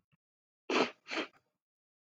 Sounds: Sniff